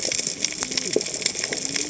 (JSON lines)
{"label": "biophony, cascading saw", "recorder": "HydroMoth"}